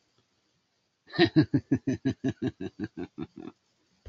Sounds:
Laughter